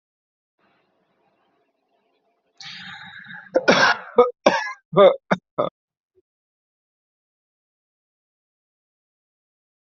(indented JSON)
{
  "expert_labels": [
    {
      "quality": "good",
      "cough_type": "unknown",
      "dyspnea": false,
      "wheezing": false,
      "stridor": false,
      "choking": false,
      "congestion": false,
      "nothing": true,
      "diagnosis": "healthy cough",
      "severity": "pseudocough/healthy cough"
    }
  ],
  "age": 24,
  "gender": "male",
  "respiratory_condition": false,
  "fever_muscle_pain": true,
  "status": "healthy"
}